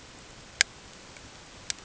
{"label": "ambient", "recorder": "HydroMoth"}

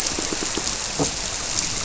{"label": "biophony, squirrelfish (Holocentrus)", "recorder": "SoundTrap 300"}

